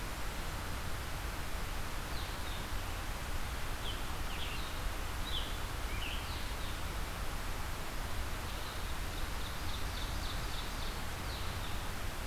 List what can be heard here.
Red-eyed Vireo, Scarlet Tanager, Ovenbird